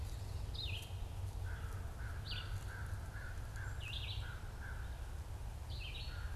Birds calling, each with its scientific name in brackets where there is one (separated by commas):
American Crow (Corvus brachyrhynchos), Red-eyed Vireo (Vireo olivaceus)